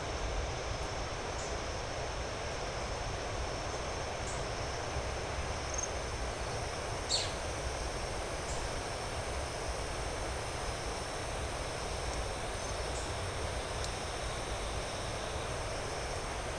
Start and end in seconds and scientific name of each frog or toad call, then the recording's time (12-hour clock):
none
5:45pm